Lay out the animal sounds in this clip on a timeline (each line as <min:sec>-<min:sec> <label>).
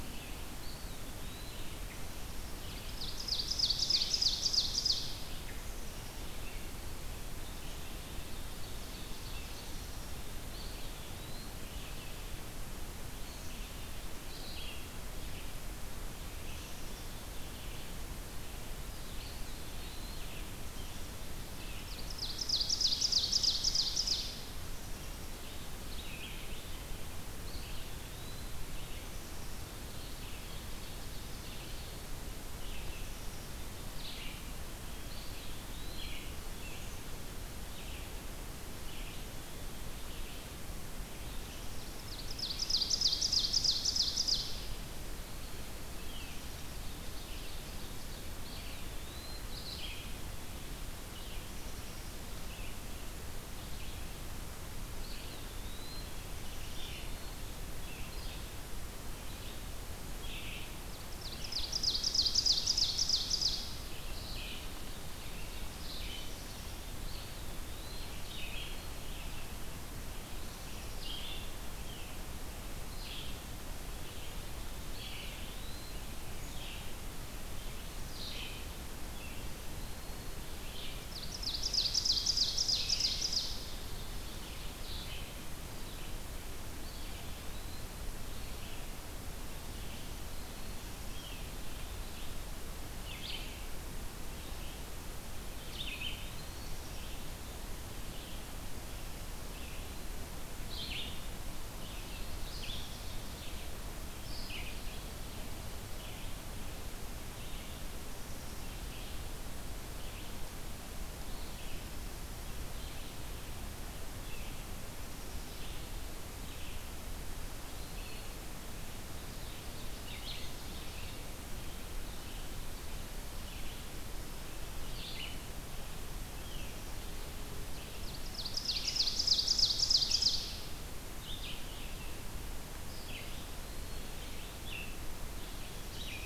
0:00.0-0:18.1 Red-eyed Vireo (Vireo olivaceus)
0:00.2-0:02.0 Eastern Wood-Pewee (Contopus virens)
0:02.4-0:05.5 Ovenbird (Seiurus aurocapilla)
0:05.5-0:07.0 Black-capped Chickadee (Poecile atricapillus)
0:07.6-0:09.8 Ovenbird (Seiurus aurocapilla)
0:10.5-0:11.7 Eastern Wood-Pewee (Contopus virens)
0:16.4-0:17.8 Black-capped Chickadee (Poecile atricapillus)
0:18.9-1:17.0 Red-eyed Vireo (Vireo olivaceus)
0:19.0-0:20.5 Eastern Wood-Pewee (Contopus virens)
0:21.7-0:24.4 Ovenbird (Seiurus aurocapilla)
0:24.6-0:25.4 Black-capped Chickadee (Poecile atricapillus)
0:27.3-0:28.6 Eastern Wood-Pewee (Contopus virens)
0:29.0-0:29.7 Black-capped Chickadee (Poecile atricapillus)
0:30.2-0:32.1 Ovenbird (Seiurus aurocapilla)
0:34.8-0:36.4 Eastern Wood-Pewee (Contopus virens)
0:41.9-0:44.9 Ovenbird (Seiurus aurocapilla)
0:47.0-0:48.3 Ovenbird (Seiurus aurocapilla)
0:48.3-0:49.6 Eastern Wood-Pewee (Contopus virens)
0:54.7-0:56.3 Eastern Wood-Pewee (Contopus virens)
1:00.7-1:04.0 Ovenbird (Seiurus aurocapilla)
1:06.9-1:08.6 Eastern Wood-Pewee (Contopus virens)
1:10.4-1:11.3 Black-capped Chickadee (Poecile atricapillus)
1:14.8-1:16.2 Eastern Wood-Pewee (Contopus virens)
1:18.0-2:16.3 Red-eyed Vireo (Vireo olivaceus)
1:19.4-1:20.4 Eastern Wood-Pewee (Contopus virens)
1:20.8-1:23.8 Ovenbird (Seiurus aurocapilla)
1:26.6-1:28.3 Eastern Wood-Pewee (Contopus virens)
1:35.3-1:37.1 Eastern Wood-Pewee (Contopus virens)
1:41.9-1:43.7 Ovenbird (Seiurus aurocapilla)
2:07.6-2:10.7 Ovenbird (Seiurus aurocapilla)
2:12.5-2:14.6 Eastern Wood-Pewee (Contopus virens)